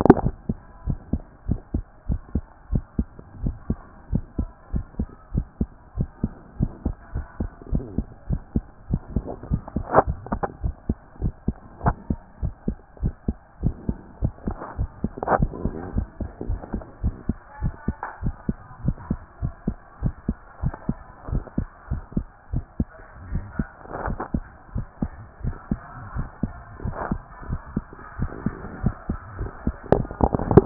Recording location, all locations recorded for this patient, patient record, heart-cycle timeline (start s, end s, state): tricuspid valve (TV)
aortic valve (AV)+pulmonary valve (PV)+tricuspid valve (TV)+mitral valve (MV)
#Age: Child
#Sex: Male
#Height: 124.0 cm
#Weight: 23.2 kg
#Pregnancy status: False
#Murmur: Absent
#Murmur locations: nan
#Most audible location: nan
#Systolic murmur timing: nan
#Systolic murmur shape: nan
#Systolic murmur grading: nan
#Systolic murmur pitch: nan
#Systolic murmur quality: nan
#Diastolic murmur timing: nan
#Diastolic murmur shape: nan
#Diastolic murmur grading: nan
#Diastolic murmur pitch: nan
#Diastolic murmur quality: nan
#Outcome: Abnormal
#Campaign: 2014 screening campaign
0.00	0.86	unannotated
0.86	0.98	S1
0.98	1.12	systole
1.12	1.22	S2
1.22	1.48	diastole
1.48	1.60	S1
1.60	1.74	systole
1.74	1.84	S2
1.84	2.08	diastole
2.08	2.20	S1
2.20	2.34	systole
2.34	2.44	S2
2.44	2.72	diastole
2.72	2.84	S1
2.84	2.98	systole
2.98	3.06	S2
3.06	3.42	diastole
3.42	3.54	S1
3.54	3.68	systole
3.68	3.78	S2
3.78	4.12	diastole
4.12	4.24	S1
4.24	4.38	systole
4.38	4.48	S2
4.48	4.74	diastole
4.74	4.84	S1
4.84	4.98	systole
4.98	5.08	S2
5.08	5.34	diastole
5.34	5.46	S1
5.46	5.60	systole
5.60	5.68	S2
5.68	5.98	diastole
5.98	6.08	S1
6.08	6.22	systole
6.22	6.32	S2
6.32	6.60	diastole
6.60	6.72	S1
6.72	6.84	systole
6.84	6.94	S2
6.94	7.14	diastole
7.14	7.26	S1
7.26	7.40	systole
7.40	7.50	S2
7.50	7.72	diastole
7.72	7.84	S1
7.84	7.96	systole
7.96	8.06	S2
8.06	8.28	diastole
8.28	8.40	S1
8.40	8.54	systole
8.54	8.64	S2
8.64	8.90	diastole
8.90	9.02	S1
9.02	9.14	systole
9.14	9.24	S2
9.24	9.50	diastole
9.50	9.62	S1
9.62	9.76	systole
9.76	9.86	S2
9.86	10.06	diastole
10.06	10.18	S1
10.18	10.30	systole
10.30	10.42	S2
10.42	10.62	diastole
10.62	10.74	S1
10.74	10.88	systole
10.88	10.96	S2
10.96	11.22	diastole
11.22	11.34	S1
11.34	11.46	systole
11.46	11.56	S2
11.56	11.84	diastole
11.84	11.96	S1
11.96	12.08	systole
12.08	12.18	S2
12.18	12.42	diastole
12.42	12.54	S1
12.54	12.66	systole
12.66	12.76	S2
12.76	13.02	diastole
13.02	13.14	S1
13.14	13.26	systole
13.26	13.36	S2
13.36	13.62	diastole
13.62	13.74	S1
13.74	13.88	systole
13.88	13.96	S2
13.96	14.22	diastole
14.22	14.32	S1
14.32	14.46	systole
14.46	14.56	S2
14.56	14.78	diastole
14.78	14.90	S1
14.90	15.02	systole
15.02	15.12	S2
15.12	15.36	diastole
15.36	15.50	S1
15.50	15.64	systole
15.64	15.74	S2
15.74	15.94	diastole
15.94	16.06	S1
16.06	16.20	systole
16.20	16.30	S2
16.30	16.48	diastole
16.48	16.60	S1
16.60	16.72	systole
16.72	16.82	S2
16.82	17.02	diastole
17.02	17.14	S1
17.14	17.28	systole
17.28	17.36	S2
17.36	17.62	diastole
17.62	17.74	S1
17.74	17.86	systole
17.86	17.96	S2
17.96	18.22	diastole
18.22	18.34	S1
18.34	18.48	systole
18.48	18.56	S2
18.56	18.84	diastole
18.84	18.96	S1
18.96	19.10	systole
19.10	19.18	S2
19.18	19.42	diastole
19.42	19.54	S1
19.54	19.66	systole
19.66	19.76	S2
19.76	20.02	diastole
20.02	20.14	S1
20.14	20.28	systole
20.28	20.36	S2
20.36	20.62	diastole
20.62	20.74	S1
20.74	20.88	systole
20.88	20.96	S2
20.96	21.30	diastole
21.30	21.44	S1
21.44	21.58	systole
21.58	21.66	S2
21.66	21.90	diastole
21.90	22.02	S1
22.02	22.16	systole
22.16	22.26	S2
22.26	22.52	diastole
22.52	22.64	S1
22.64	22.78	systole
22.78	22.88	S2
22.88	23.30	diastole
23.30	23.44	S1
23.44	23.58	systole
23.58	23.66	S2
23.66	24.06	diastole
24.06	24.18	S1
24.18	24.34	systole
24.34	24.44	S2
24.44	24.74	diastole
24.74	24.86	S1
24.86	25.02	systole
25.02	25.10	S2
25.10	25.44	diastole
25.44	25.56	S1
25.56	25.70	systole
25.70	25.80	S2
25.80	26.16	diastole
26.16	26.28	S1
26.28	26.42	systole
26.42	26.52	S2
26.52	26.84	diastole
26.84	26.96	S1
26.96	27.10	systole
27.10	27.20	S2
27.20	27.48	diastole
27.48	27.60	S1
27.60	27.74	systole
27.74	27.84	S2
27.84	28.18	diastole
28.18	28.30	S1
28.30	28.44	systole
28.44	28.54	S2
28.54	28.82	diastole
28.82	28.94	S1
28.94	29.08	systole
29.08	29.18	S2
29.18	29.38	diastole
29.38	30.66	unannotated